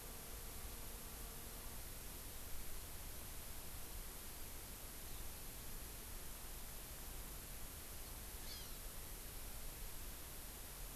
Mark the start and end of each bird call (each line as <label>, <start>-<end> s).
Hawaii Amakihi (Chlorodrepanis virens), 8.3-8.8 s